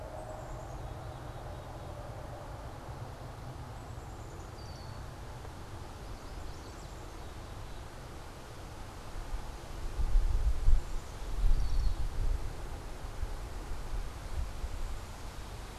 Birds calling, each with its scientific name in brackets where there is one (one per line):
Red-winged Blackbird (Agelaius phoeniceus)
Yellow Warbler (Setophaga petechia)
Black-capped Chickadee (Poecile atricapillus)